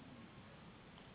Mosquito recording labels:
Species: Anopheles gambiae s.s.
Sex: female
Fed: unfed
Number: one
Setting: insect culture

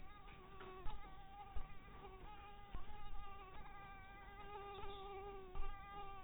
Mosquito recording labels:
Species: mosquito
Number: one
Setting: cup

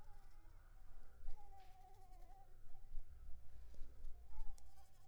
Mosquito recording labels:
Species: Anopheles arabiensis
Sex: female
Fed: unfed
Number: one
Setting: cup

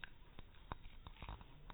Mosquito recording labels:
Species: mosquito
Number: one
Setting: cup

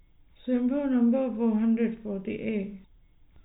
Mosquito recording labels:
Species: no mosquito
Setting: cup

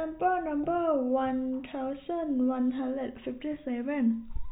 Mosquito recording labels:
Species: no mosquito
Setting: cup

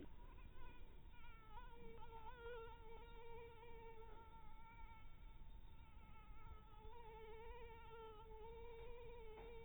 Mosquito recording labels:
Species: mosquito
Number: one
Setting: cup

